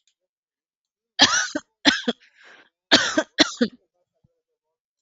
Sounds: Cough